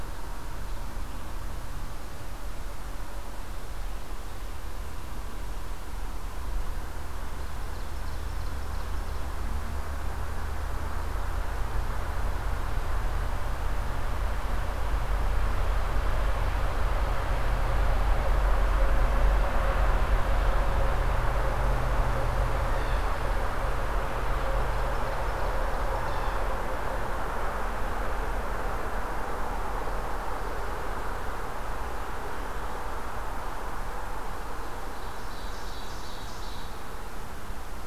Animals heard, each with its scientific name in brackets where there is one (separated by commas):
Ovenbird (Seiurus aurocapilla), Blue Jay (Cyanocitta cristata)